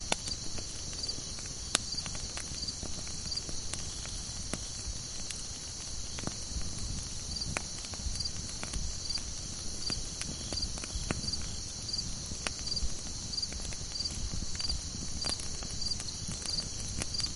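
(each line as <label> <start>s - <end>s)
A campfire crackles and snaps gently while crickets chirp rhythmically, creating a peaceful nighttime camping atmosphere. 0.0s - 17.4s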